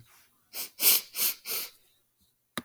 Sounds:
Sniff